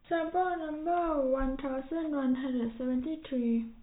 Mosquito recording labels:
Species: no mosquito; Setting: cup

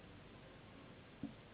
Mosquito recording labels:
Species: Anopheles gambiae s.s.; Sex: female; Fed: unfed; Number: one; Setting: insect culture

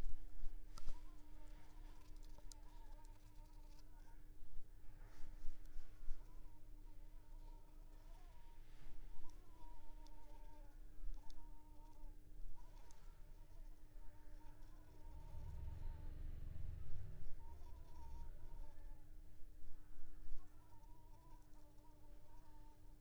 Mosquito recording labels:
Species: Anopheles coustani; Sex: female; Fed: unfed; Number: one; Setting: cup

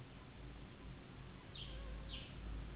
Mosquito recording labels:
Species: Anopheles gambiae s.s.; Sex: female; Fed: unfed; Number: one; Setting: insect culture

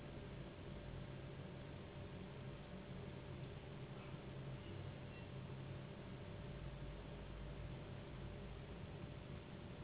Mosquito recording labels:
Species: Anopheles gambiae s.s.; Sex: female; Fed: unfed; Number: one; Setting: insect culture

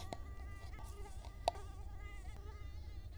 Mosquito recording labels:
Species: Culex quinquefasciatus; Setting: cup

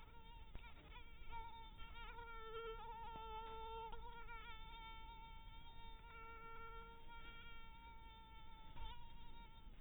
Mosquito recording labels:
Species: mosquito; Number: one; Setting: cup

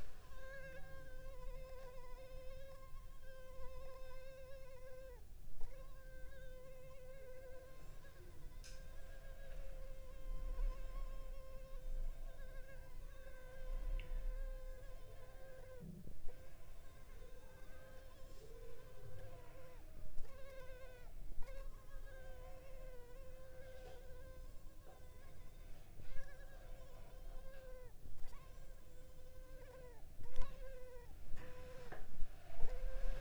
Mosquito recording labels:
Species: Culex pipiens complex; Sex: female; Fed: unfed; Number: one; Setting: cup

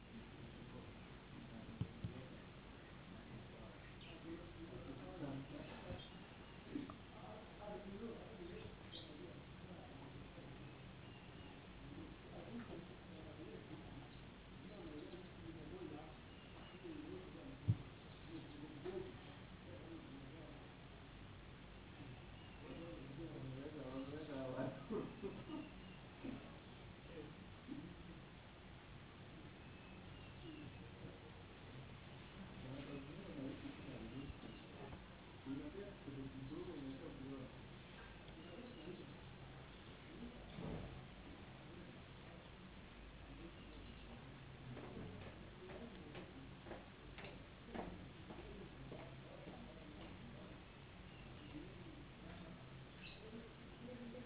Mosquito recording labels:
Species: no mosquito; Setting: insect culture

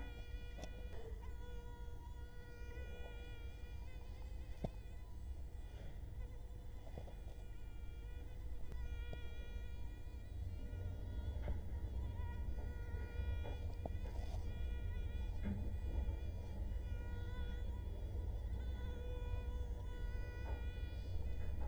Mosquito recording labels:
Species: Culex quinquefasciatus; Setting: cup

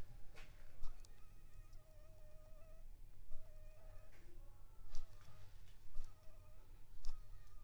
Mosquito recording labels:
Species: Anopheles funestus s.s.; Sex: female; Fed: unfed; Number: one; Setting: cup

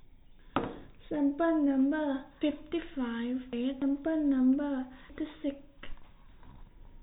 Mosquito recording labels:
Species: no mosquito; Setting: cup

